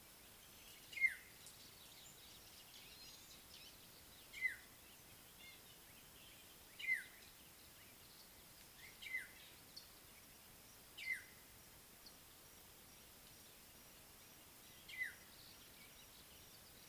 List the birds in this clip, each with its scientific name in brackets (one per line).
Red-fronted Barbet (Tricholaema diademata)
White-browed Sparrow-Weaver (Plocepasser mahali)
African Black-headed Oriole (Oriolus larvatus)